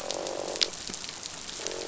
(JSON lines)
{"label": "biophony, croak", "recorder": "SoundTrap 500"}